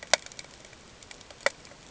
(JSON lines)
{"label": "ambient", "recorder": "HydroMoth"}